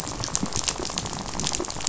{"label": "biophony, rattle", "recorder": "SoundTrap 500"}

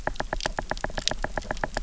{"label": "biophony, knock", "recorder": "SoundTrap 300"}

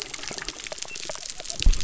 {"label": "biophony", "recorder": "SoundTrap 300"}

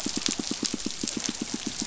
{"label": "biophony, pulse", "recorder": "SoundTrap 500"}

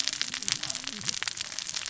{"label": "biophony, cascading saw", "recorder": "SoundTrap 600 or HydroMoth"}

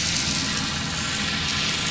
{"label": "anthrophony, boat engine", "recorder": "SoundTrap 500"}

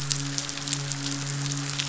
{"label": "biophony, midshipman", "recorder": "SoundTrap 500"}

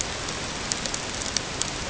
{"label": "ambient", "recorder": "HydroMoth"}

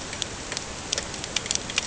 {"label": "ambient", "recorder": "HydroMoth"}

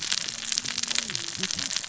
{"label": "biophony, cascading saw", "recorder": "SoundTrap 600 or HydroMoth"}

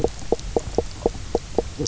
{"label": "biophony, knock croak", "recorder": "SoundTrap 300"}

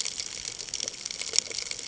{"label": "ambient", "recorder": "HydroMoth"}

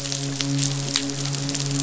{"label": "biophony, midshipman", "recorder": "SoundTrap 500"}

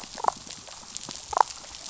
{"label": "biophony, damselfish", "recorder": "SoundTrap 500"}
{"label": "biophony", "recorder": "SoundTrap 500"}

